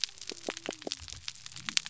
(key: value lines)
label: biophony
recorder: SoundTrap 300